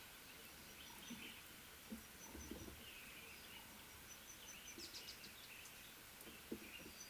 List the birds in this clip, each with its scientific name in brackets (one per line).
Speckled Mousebird (Colius striatus)